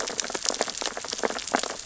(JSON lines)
{"label": "biophony, sea urchins (Echinidae)", "recorder": "SoundTrap 600 or HydroMoth"}